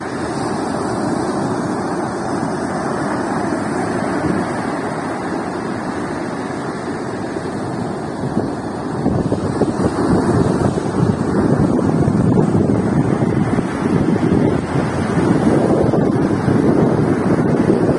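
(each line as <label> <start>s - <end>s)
Wind blows steadily outdoors. 0.0s - 8.7s
Wind blowing loudly and gradually increasing outdoors. 8.7s - 18.0s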